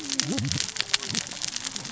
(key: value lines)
label: biophony, cascading saw
recorder: SoundTrap 600 or HydroMoth